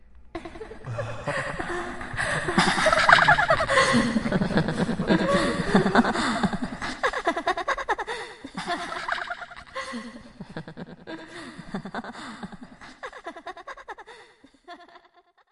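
A medium to high-pitched female voice laughing out of rhythm with a layered, pitch-altered effect and heavy reverb that gradually reduces in volume. 0.4 - 15.0
A medium-range male moan with a rhythmic, low-frequency oscillation-like cutting effect and heavy reverb. 0.8 - 2.4

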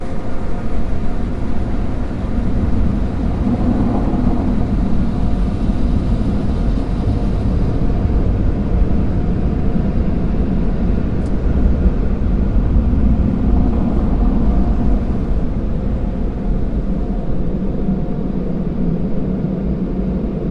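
A car moves through an automated car wash with whirring brushes, forceful water jets, and muffled thuds. 0.0 - 20.5

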